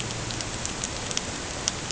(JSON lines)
{"label": "ambient", "recorder": "HydroMoth"}